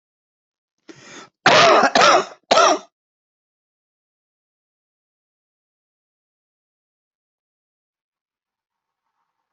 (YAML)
expert_labels:
- quality: ok
  cough_type: dry
  dyspnea: false
  wheezing: false
  stridor: false
  choking: false
  congestion: false
  nothing: true
  diagnosis: COVID-19
  severity: mild
age: 59
gender: male
respiratory_condition: false
fever_muscle_pain: false
status: COVID-19